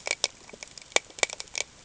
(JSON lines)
{"label": "ambient", "recorder": "HydroMoth"}